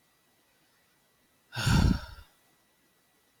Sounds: Sigh